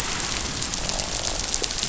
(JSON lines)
{"label": "biophony, croak", "recorder": "SoundTrap 500"}